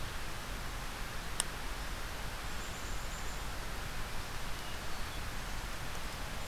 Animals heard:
Black-capped Chickadee (Poecile atricapillus)

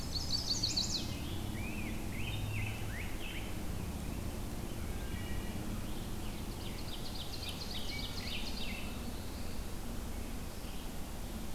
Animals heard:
Ovenbird (Seiurus aurocapilla)
Wood Thrush (Hylocichla mustelina)
Chestnut-sided Warbler (Setophaga pensylvanica)
Black-throated Blue Warbler (Setophaga caerulescens)
Rose-breasted Grosbeak (Pheucticus ludovicianus)
Black-and-white Warbler (Mniotilta varia)

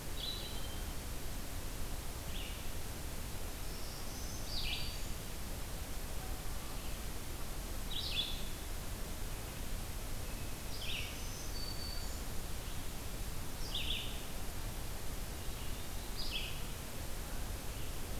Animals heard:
Red-eyed Vireo (Vireo olivaceus)
Hermit Thrush (Catharus guttatus)
Black-throated Green Warbler (Setophaga virens)

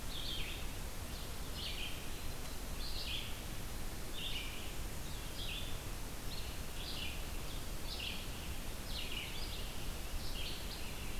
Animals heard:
Red-eyed Vireo (Vireo olivaceus)

